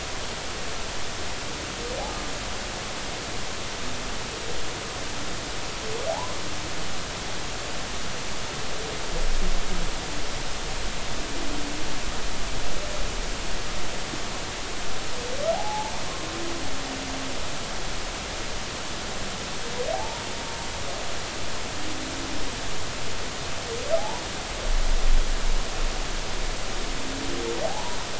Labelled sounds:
6.1	6.3	humpback whale, 0.80 to 1.1 kHz
15.5	15.9	humpback whale, 0.80 to 0.93 kHz
19.9	20.2	humpback whale, 0.80 to 0.99 kHz
24.0	24.2	humpback whale, 0.80 to 1.0 kHz
27.6	28.0	humpback whale, 0.80 to 1.0 kHz

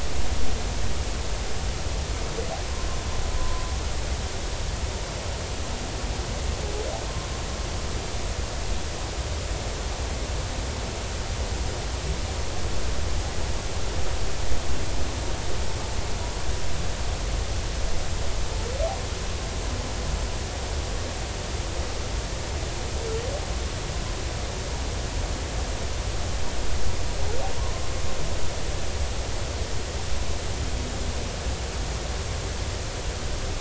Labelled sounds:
3.4	3.7	humpback whale, 0.93 to 1.1 kHz

